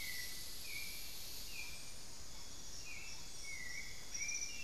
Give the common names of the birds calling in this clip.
White-necked Thrush, unidentified bird